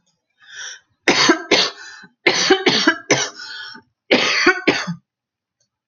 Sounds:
Cough